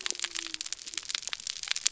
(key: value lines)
label: biophony
recorder: SoundTrap 300